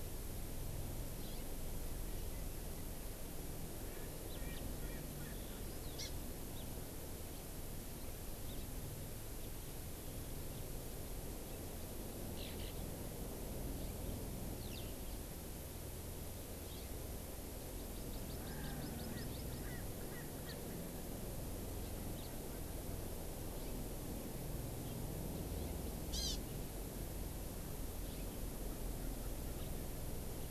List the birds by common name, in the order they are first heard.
Erckel's Francolin, Hawaii Amakihi, Eurasian Skylark, House Finch